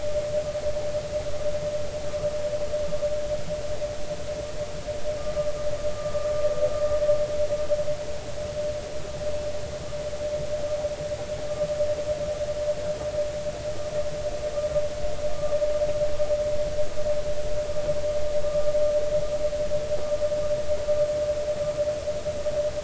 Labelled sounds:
6.0	6.3	vessel noise, 1.1 to 1.3 kHz
18.4	18.7	vessel noise, 1.2 to 1.3 kHz

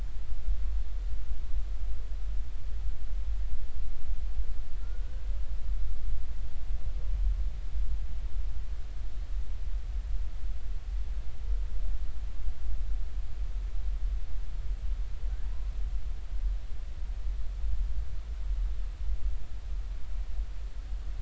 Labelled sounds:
4.8	5.3	humpback whale, 1.3 to 1.6 kHz
15.4	15.7	humpback whale, 0.86 to 1.2 kHz

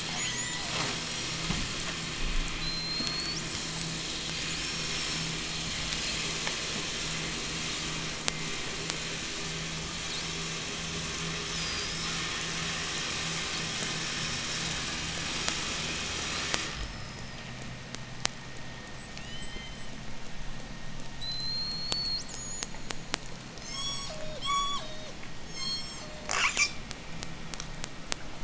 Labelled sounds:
0.0	0.8	killer whale, J pod, 0 to 8.0 kHz
2.4	3.9	killer whale, J pod, 3.5 to 8.0 kHz
4.5	5.4	killer whale, 5.1 to 5.7 kHz
8.2	9.0	killer whale, J pod, 0.45 to 8.0 kHz
9.9	10.6	killer whale, 3.4 to 5.8 kHz
11.3	12.4	killer whale, 4.6 to 5.7 kHz
13.9	14.8	killer whale, 5.1 to 5.9 kHz
16.7	17.5	killer whale, J pod, 4.7 to 5.5 kHz
18.8	20.2	killer whale, J pod, 1.6 to 8.0 kHz
21.1	23.3	killer whale, J pod, 0.08 to 8.0 kHz
23.4	25.1	killer whale, J pod, call S03, 0.23 to 8.0 kHz
25.4	26.3	killer whale, J pod, call S03, 0.37 to 8.0 kHz
26.3	26.9	killer whale, J pod, 0.29 to 8.0 kHz

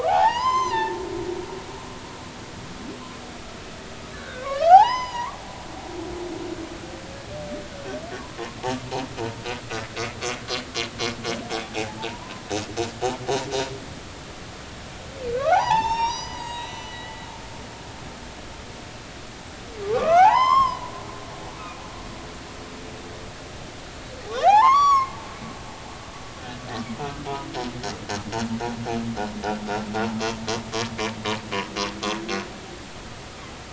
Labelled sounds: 0.0	1.0	humpback whale, 0.80 to 7.3 kHz
4.1	5.4	humpback whale, 0.80 to 6.2 kHz
11.6	12.4	humpback whale, 0.80 to 1.1 kHz
15.4	17.1	humpback whale, 0.80 to 7.7 kHz
17.9	18.2	humpback whale, 1.9 to 2.1 kHz
20.0	21.7	humpback whale, 0.80 to 7.4 kHz
24.4	25.1	humpback whale, 0.80 to 6.9 kHz
27.0	27.3	humpback whale, 1.2 to 1.5 kHz

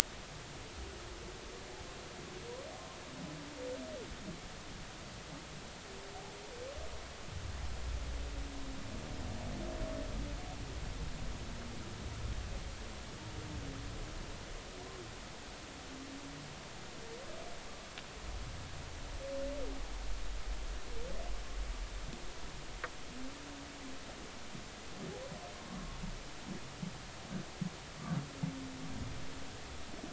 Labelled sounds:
25.7	26.0	humpback whale, 1.1 to 1.2 kHz

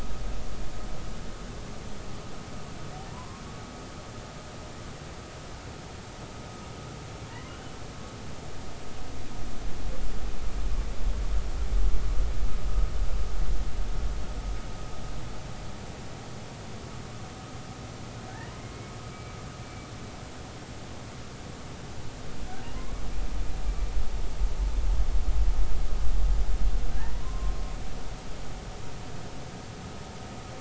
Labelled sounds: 3.1	3.4	humpback whale, 0.93 to 1.1 kHz
19.1	19.4	humpback whale, 2.2 to 2.4 kHz
22.7	23.0	humpback whale, 0.99 to 1.2 kHz
26.9	27.5	humpback whale, 0.86 to 2.0 kHz

